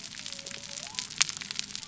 {"label": "biophony", "recorder": "SoundTrap 300"}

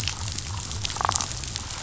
{"label": "biophony", "recorder": "SoundTrap 500"}
{"label": "biophony, damselfish", "recorder": "SoundTrap 500"}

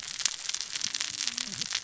{"label": "biophony, cascading saw", "recorder": "SoundTrap 600 or HydroMoth"}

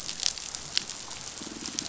{"label": "biophony, pulse", "recorder": "SoundTrap 500"}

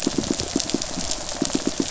{"label": "biophony, pulse", "recorder": "SoundTrap 500"}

